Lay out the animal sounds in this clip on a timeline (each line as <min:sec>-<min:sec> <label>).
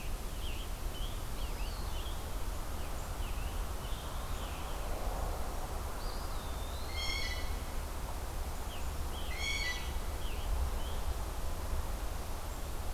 0:00.0-0:02.2 Scarlet Tanager (Piranga olivacea)
0:01.2-0:02.4 Eastern Wood-Pewee (Contopus virens)
0:02.6-0:04.8 Scarlet Tanager (Piranga olivacea)
0:05.7-0:07.5 Eastern Wood-Pewee (Contopus virens)
0:06.7-0:07.7 Blue Jay (Cyanocitta cristata)
0:08.5-0:11.2 Scarlet Tanager (Piranga olivacea)
0:09.2-0:09.9 Blue Jay (Cyanocitta cristata)